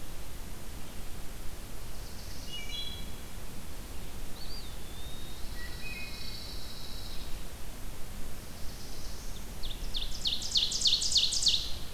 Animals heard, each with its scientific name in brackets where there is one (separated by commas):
Pine Warbler (Setophaga pinus), Wood Thrush (Hylocichla mustelina), Black-throated Blue Warbler (Setophaga caerulescens), Eastern Wood-Pewee (Contopus virens), Ovenbird (Seiurus aurocapilla)